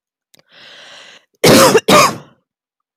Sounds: Cough